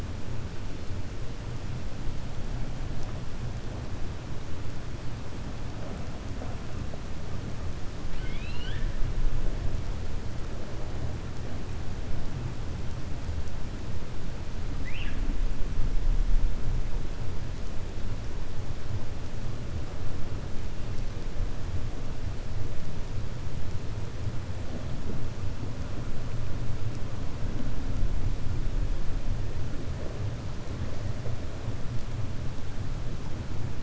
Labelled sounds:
8.0	8.9	killer whale, 1.5 to 4.9 kHz

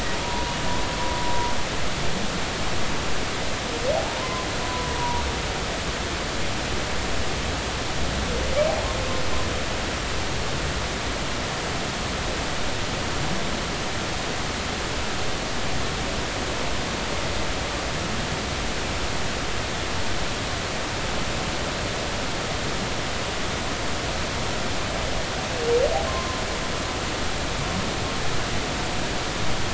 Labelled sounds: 0.2	0.6	humpback whale, 0.90 to 1.0 kHz
4.0	5.2	humpback whale, 0.80 to 1.0 kHz
26.1	26.4	humpback whale, 0.99 to 1.1 kHz

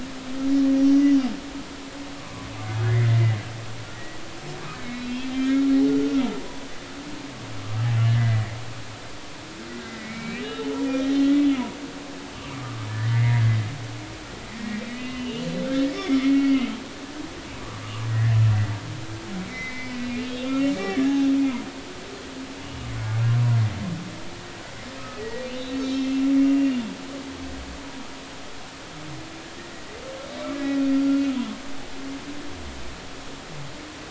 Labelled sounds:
0.9	1.2	humpback whale, 1.9 to 2.0 kHz
2.2	3.1	humpback whale, 0.99 to 2.2 kHz
3.9	4.2	humpback whale, 1.9 to 2.0 kHz
4.8	6.7	humpback whale, 0.90 to 4.0 kHz
8.1	8.4	humpback whale, 1.6 to 2.1 kHz
9.9	10.8	humpback whale, 1.9 to 3.8 kHz
11.2	11.4	humpback whale, 1.9 to 2.1 kHz
12.5	13.5	humpback whale, 1.1 to 2.2 kHz
14.6	15.5	humpback whale, 1.8 to 3.0 kHz
15.9	16.7	humpback whale, 2.0 to 3.6 kHz
18.1	18.4	humpback whale, 1.7 to 2.1 kHz
19.5	21.3	humpback whale, 1.5 to 3.9 kHz
22.9	23.2	humpback whale, 1.4 to 1.5 kHz
25.2	26.8	humpback whale, 1.9 to 4.0 kHz
31.1	31.3	humpback whale, 1.3 to 1.5 kHz

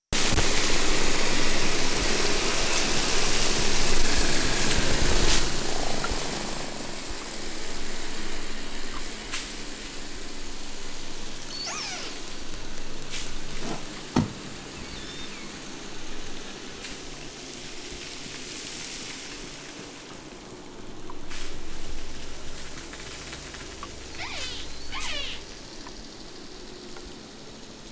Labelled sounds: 11.4	12.2	killer whale, southern Alaska resident, 0.37 to 8.0 kHz
14.7	15.5	killer whale, southern Alaska resident, 0.64 to 8.0 kHz
24.0	25.5	killer whale, southern Alaska resident, 0.28 to 8.0 kHz

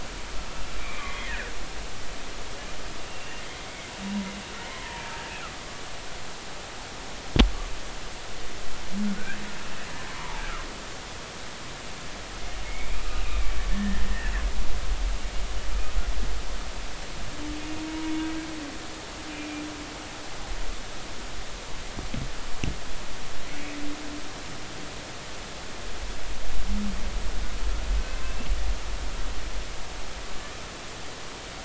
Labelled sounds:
0.8	1.5	humpback whale, 1.4 to 2.5 kHz
3.0	3.4	humpback whale, 2.7 to 2.9 kHz
4.7	5.0	humpback whale, 0.86 to 1.1 kHz
9.2	10.4	humpback whale, 0.83 to 1.9 kHz
12.6	13.0	humpback whale, 2.1 to 2.5 kHz
13.7	14.0	humpback whale, 1.7 to 1.9 kHz
17.9	18.1	humpback whale, 0.93 to 1.0 kHz
19.3	19.6	humpback whale, 2.3 to 2.5 kHz

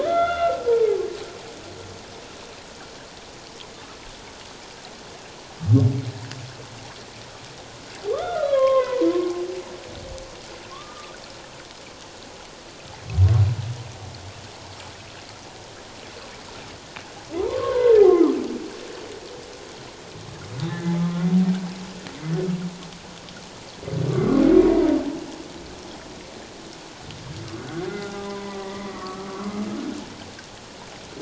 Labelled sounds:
0.0	0.6	humpback whale, 1.2 to 3.6 kHz
8.1	9.1	humpback whale, 0.91 to 3.6 kHz
10.7	11.2	humpback whale, 1.0 to 1.3 kHz
17.4	18.0	humpback whale, 0.88 to 1.7 kHz
20.7	21.0	humpback whale, 1.7 to 1.9 kHz
24.6	24.9	humpback whale, 0.91 to 1.0 kHz
27.6	29.6	humpback whale, 0.78 to 2.1 kHz

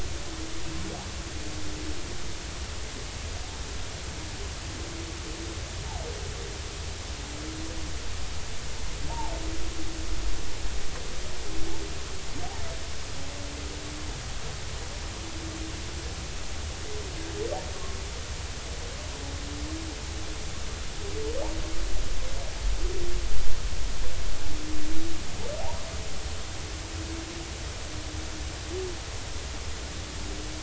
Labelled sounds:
9.1	9.3	humpback whale, 0.80 to 0.99 kHz
17.7	18.0	humpback whale, 1.0 to 1.2 kHz
25.6	25.9	humpback whale, 0.80 to 1.1 kHz

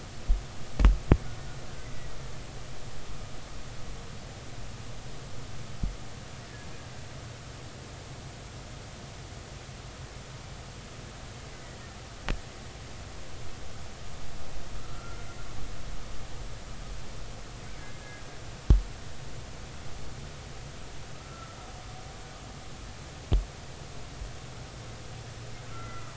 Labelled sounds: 14.8	15.3	killer whale, Bigg's (transient), 1.2 to 1.4 kHz
21.2	21.6	killer whale, Bigg's (transient), 1.3 to 1.4 kHz
25.7	26.1	killer whale, Bigg's (transient), 1.2 to 2.1 kHz

